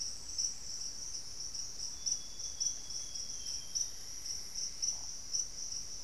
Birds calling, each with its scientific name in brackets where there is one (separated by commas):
Amazonian Grosbeak (Cyanoloxia rothschildii), Plumbeous Antbird (Myrmelastes hyperythrus)